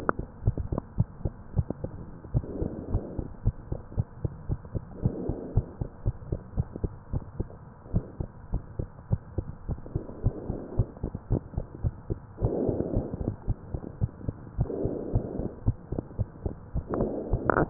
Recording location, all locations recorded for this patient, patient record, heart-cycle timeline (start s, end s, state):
tricuspid valve (TV)
aortic valve (AV)+pulmonary valve (PV)+tricuspid valve (TV)+mitral valve (MV)
#Age: Child
#Sex: Female
#Height: 103.0 cm
#Weight: 18.1 kg
#Pregnancy status: False
#Murmur: Absent
#Murmur locations: nan
#Most audible location: nan
#Systolic murmur timing: nan
#Systolic murmur shape: nan
#Systolic murmur grading: nan
#Systolic murmur pitch: nan
#Systolic murmur quality: nan
#Diastolic murmur timing: nan
#Diastolic murmur shape: nan
#Diastolic murmur grading: nan
#Diastolic murmur pitch: nan
#Diastolic murmur quality: nan
#Outcome: Normal
#Campaign: 2015 screening campaign
0.00	1.99	unannotated
1.99	2.30	diastole
2.30	2.44	S1
2.44	2.56	systole
2.56	2.70	S2
2.70	2.88	diastole
2.88	3.02	S1
3.02	3.16	systole
3.16	3.26	S2
3.26	3.42	diastole
3.42	3.56	S1
3.56	3.68	systole
3.68	3.80	S2
3.80	3.94	diastole
3.94	4.06	S1
4.06	4.22	systole
4.22	4.32	S2
4.32	4.48	diastole
4.48	4.60	S1
4.60	4.74	systole
4.74	4.84	S2
4.84	5.02	diastole
5.02	5.14	S1
5.14	5.26	systole
5.26	5.36	S2
5.36	5.50	diastole
5.50	5.67	S1
5.67	5.80	systole
5.80	5.88	S2
5.88	6.02	diastole
6.02	6.16	S1
6.16	6.28	systole
6.28	6.40	S2
6.40	6.56	diastole
6.56	6.68	S1
6.68	6.82	systole
6.82	6.92	S2
6.92	7.12	diastole
7.12	7.24	S1
7.24	7.39	systole
7.39	7.50	S2
7.50	7.90	diastole
7.90	8.04	S1
8.04	8.16	systole
8.16	8.30	S2
8.30	8.52	diastole
8.52	8.62	S1
8.62	8.78	systole
8.78	8.88	S2
8.88	9.10	diastole
9.10	9.20	S1
9.20	9.34	systole
9.34	9.46	S2
9.46	9.66	diastole
9.66	9.80	S1
9.80	9.94	systole
9.94	10.04	S2
10.04	10.22	diastole
10.22	10.36	S1
10.36	10.48	systole
10.48	10.60	S2
10.60	10.76	diastole
10.76	10.88	S1
10.88	11.04	systole
11.04	11.12	S2
11.12	11.30	diastole
11.30	11.44	S1
11.44	11.56	systole
11.56	11.66	S2
11.66	11.82	diastole
11.82	11.94	S1
11.94	12.10	systole
12.10	12.20	S2
12.20	12.32	diastole
12.32	17.70	unannotated